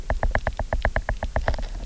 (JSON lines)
{"label": "biophony, knock", "recorder": "SoundTrap 300"}